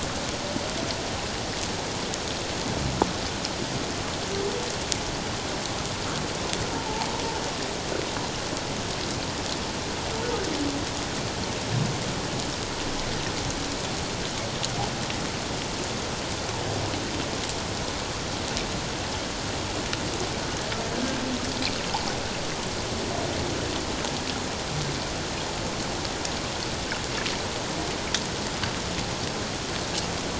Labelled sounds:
6.7	7.1	humpback whale, 0.78 to 1.0 kHz

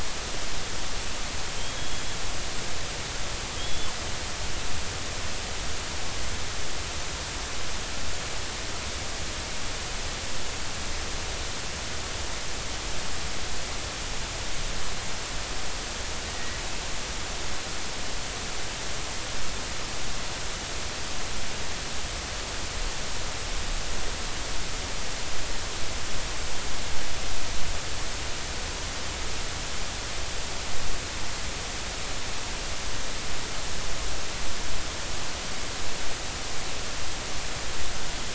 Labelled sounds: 1.6	2.0	killer whale, 3.1 to 3.4 kHz
3.6	3.9	killer whale, 3.2 to 3.5 kHz
16.3	16.6	killer whale, 1.8 to 2.0 kHz

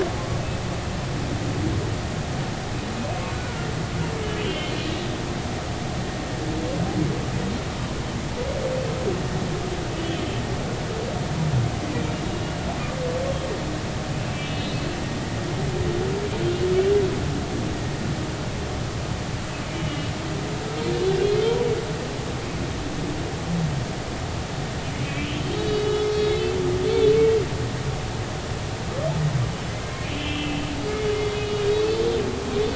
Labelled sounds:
3.3	3.7	humpback whale, 1.3 to 1.5 kHz
4.4	4.7	humpback whale, 2.8 to 3.2 kHz
10.0	10.2	humpback whale, 2.9 to 3.4 kHz
14.3	14.8	humpback whale, 2.6 to 3.5 kHz
19.7	20.1	humpback whale, 2.8 to 3.0 kHz
25.0	25.3	humpback whale, 2.2 to 2.7 kHz
30.0	30.6	humpback whale, 2.4 to 3.1 kHz
31.7	32.0	humpback whale, 4.3 to 4.5 kHz

